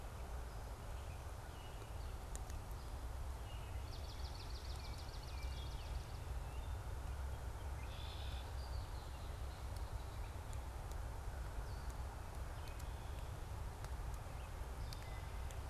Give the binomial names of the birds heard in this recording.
Melospiza georgiana, Hylocichla mustelina, Agelaius phoeniceus, Turdus migratorius